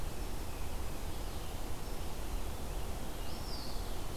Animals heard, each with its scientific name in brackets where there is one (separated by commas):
Eastern Wood-Pewee (Contopus virens), Tufted Titmouse (Baeolophus bicolor)